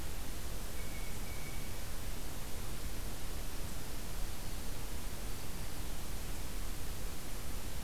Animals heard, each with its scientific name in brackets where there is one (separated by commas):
Blue Jay (Cyanocitta cristata)